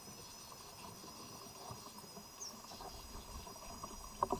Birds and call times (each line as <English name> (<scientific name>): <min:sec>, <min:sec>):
White-bellied Tit (Melaniparus albiventris): 0:02.8